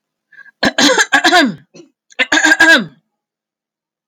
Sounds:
Throat clearing